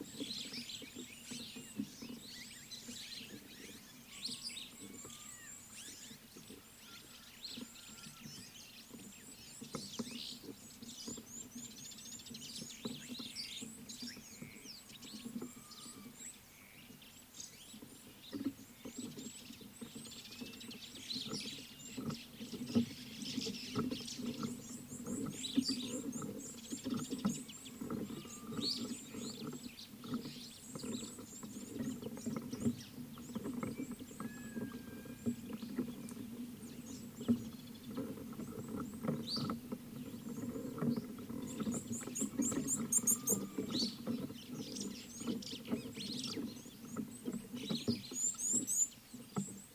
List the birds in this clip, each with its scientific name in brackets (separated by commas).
Mariqua Sunbird (Cinnyris mariquensis), Superb Starling (Lamprotornis superbus), Red-cheeked Cordonbleu (Uraeginthus bengalus)